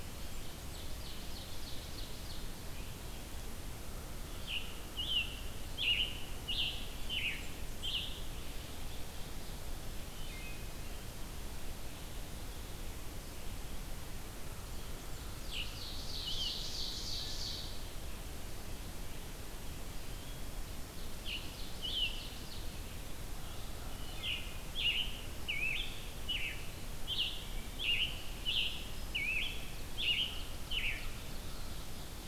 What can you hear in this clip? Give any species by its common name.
Ovenbird, Scarlet Tanager, Wood Thrush